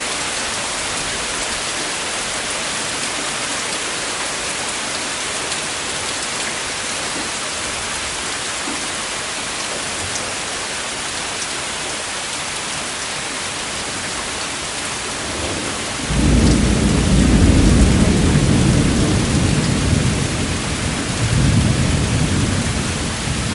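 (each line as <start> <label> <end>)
0.0 Heavy rain falling. 16.1
16.1 Thunder rumbles softly. 23.5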